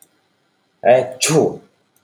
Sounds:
Sneeze